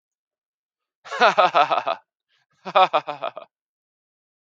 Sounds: Laughter